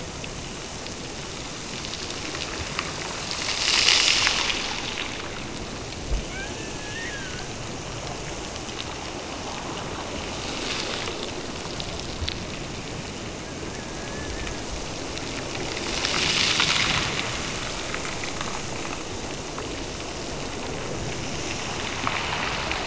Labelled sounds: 6.2	7.5	killer whale, Bigg's (transient), Gulf of Alaska transient, 1.2 to 2.8 kHz

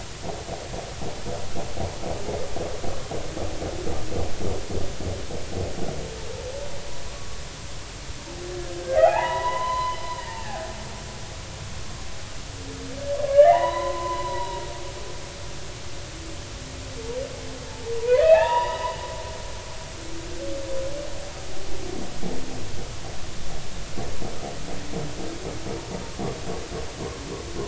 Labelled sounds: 8.9	10.5	humpback whale, 0.80 to 4.1 kHz
13.3	14.7	humpback whale, 0.80 to 4.1 kHz
15.2	15.6	humpback whale, 3.8 to 4.0 kHz
18.0	18.9	humpback whale, 0.80 to 3.0 kHz

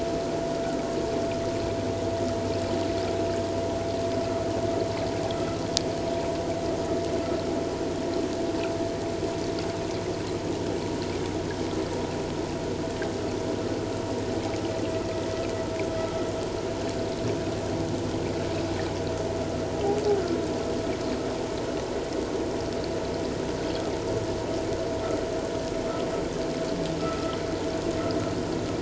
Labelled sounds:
5.3	5.6	vessel noise, 1.2 to 1.4 kHz
27.0	27.4	vessel noise, 1.2 to 1.4 kHz

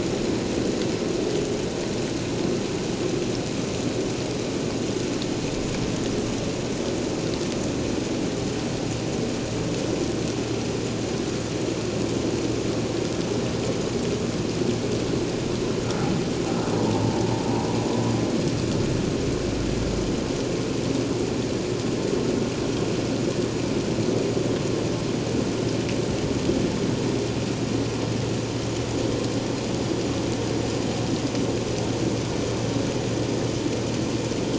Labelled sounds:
16.8	17.2	humpback whale, 0.84 to 1.0 kHz

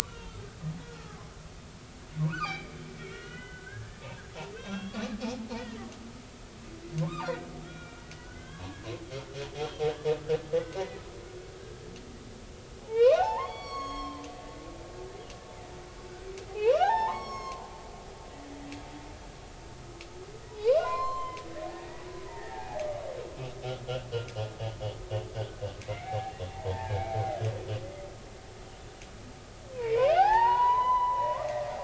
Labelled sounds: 0.0	0.3	humpback whale, 2.7 to 3.0 kHz
0.8	1.3	humpback whale, 0.99 to 1.5 kHz
2.2	2.7	humpback whale, 0.93 to 5.0 kHz
3.1	4.0	humpback whale, 1.3 to 3.1 kHz
4.5	5.1	humpback whale, 1.1 to 6.1 kHz
5.6	5.8	humpback whale, 1.8 to 2.0 kHz
7.0	8.8	humpback whale, 0.80 to 5.0 kHz
9.5	9.8	humpback whale, 3.1 to 3.4 kHz
10.4	10.9	humpback whale, 0.93 to 2.0 kHz
12.8	14.2	humpback whale, 0.80 to 8.0 kHz
16.5	17.7	humpback whale, 0.80 to 7.8 kHz
20.6	21.4	humpback whale, 0.80 to 7.4 kHz
21.7	22.8	humpback whale, 0.80 to 2.0 kHz
23.8	24.1	humpback whale, 1.3 to 1.6 kHz
25.3	26.3	humpback whale, 0.80 to 2.7 kHz
26.8	27.4	humpback whale, 0.80 to 2.4 kHz
29.7	31.5	humpback whale, 0.80 to 4.1 kHz

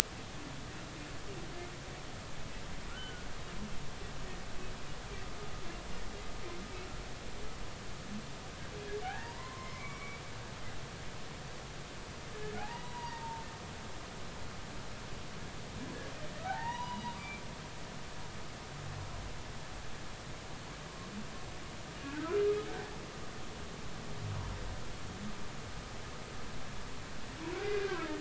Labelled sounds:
2.9	3.2	humpback whale, 1.3 to 3.1 kHz
9.0	10.2	humpback whale, 0.80 to 2.4 kHz
12.5	13.5	humpback whale, 0.80 to 1.1 kHz
14.0	14.2	humpback whale, 1.8 to 2.0 kHz
16.4	17.4	humpback whale, 0.80 to 4.0 kHz
27.7	28.1	humpback whale, 1.2 to 1.7 kHz

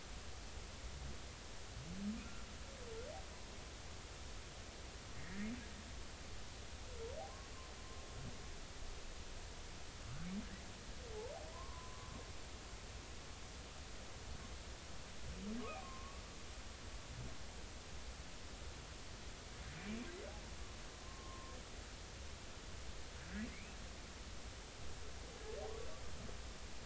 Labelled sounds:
5.1	5.5	humpback whale, 1.6 to 2.0 kHz
11.5	12.1	humpback whale, 0.93 to 1.2 kHz
15.8	16.2	humpback whale, 0.99 to 1.2 kHz
21.0	21.6	humpback whale, 0.96 to 1.1 kHz
23.5	23.8	humpback whale, 2.0 to 2.7 kHz

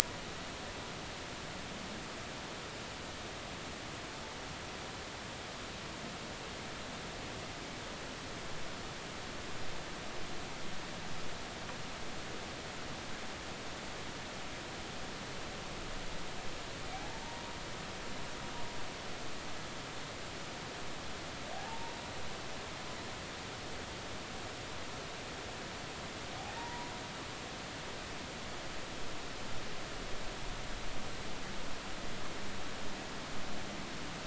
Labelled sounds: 16.9	17.2	humpback whale, 0.80 to 0.93 kHz
21.5	22.0	humpback whale, 0.80 to 0.99 kHz
26.5	26.9	humpback whale, 0.86 to 2.0 kHz

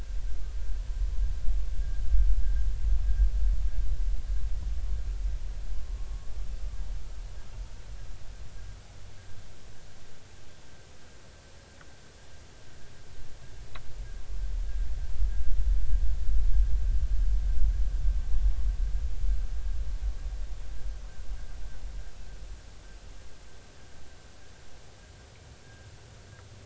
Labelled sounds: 5.7	6.1	humpback whale, 0.99 to 1.1 kHz
25.6	25.9	humpback whale, 1.5 to 1.7 kHz

